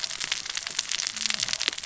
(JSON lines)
{"label": "biophony, cascading saw", "recorder": "SoundTrap 600 or HydroMoth"}